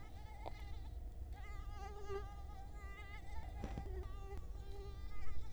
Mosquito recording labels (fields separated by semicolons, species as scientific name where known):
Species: Culex quinquefasciatus; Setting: cup